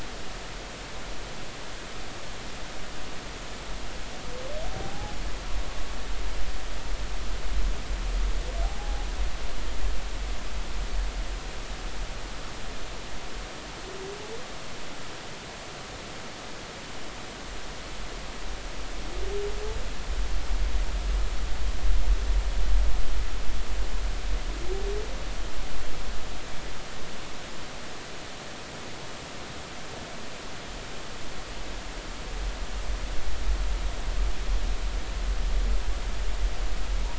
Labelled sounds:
4.7	5.1	humpback whale, 0.80 to 0.90 kHz
8.6	9.1	humpback whale, 0.80 to 0.86 kHz

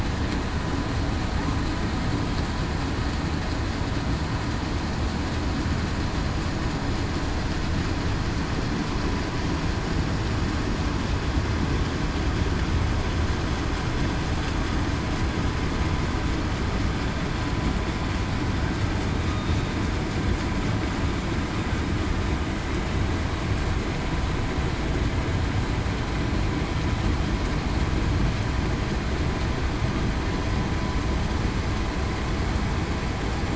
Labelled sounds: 19.3	19.7	killer whale, southern resident, 3.6 to 3.8 kHz

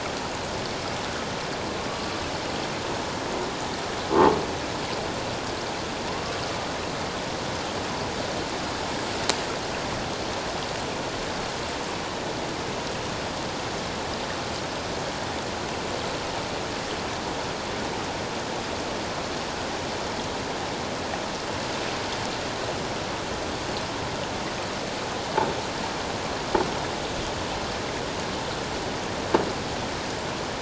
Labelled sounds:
1.9	2.2	killer whale, 1.1 to 1.2 kHz

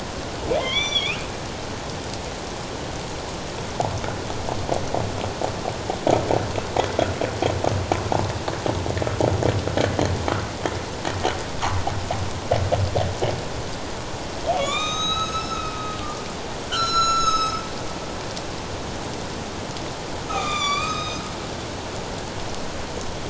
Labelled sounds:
0.6	1.2	humpback whale, 0.91 to 6.0 kHz
14.5	15.7	humpback whale, 1.1 to 7.5 kHz
16.7	17.6	humpback whale, 1.2 to 6.8 kHz
20.3	21.2	humpback whale, 1.1 to 7.2 kHz

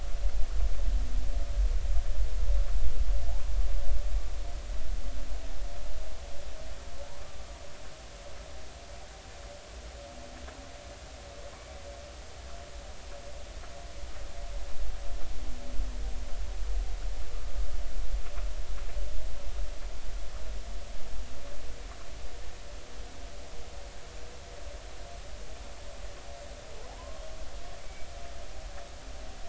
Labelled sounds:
7.0	7.2	humpback whale, 0.83 to 1.1 kHz
26.9	28.1	humpback whale, 0.80 to 2.3 kHz

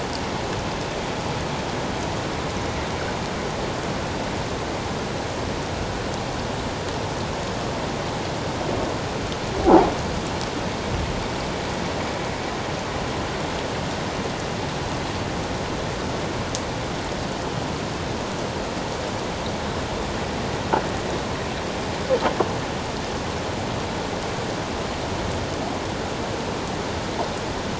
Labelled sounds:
9.6	9.9	croaking sound likely from a nearby submerged object, 0.78 to 1.0 kHz

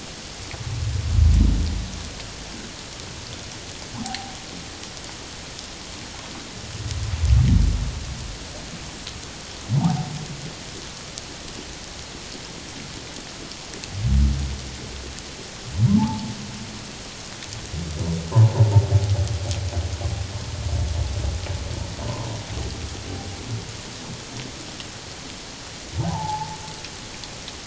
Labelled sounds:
3.9	4.4	humpback whale, 0.78 to 1.1 kHz
9.7	10.1	humpback whale, 0.78 to 1.0 kHz
16.0	16.3	humpback whale, 0.81 to 1.3 kHz
26.0	26.6	humpback whale, 0.78 to 1.0 kHz

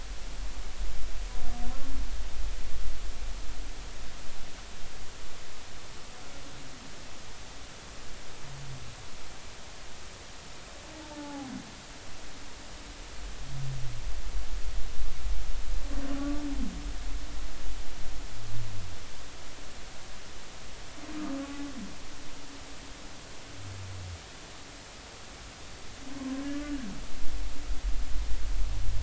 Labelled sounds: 11.1	11.5	humpback whale, 0.80 to 0.96 kHz
21.4	21.7	humpback whale, 0.80 to 0.90 kHz
26.5	26.8	humpback whale, 1.4 to 1.5 kHz

